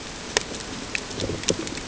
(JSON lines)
{"label": "ambient", "recorder": "HydroMoth"}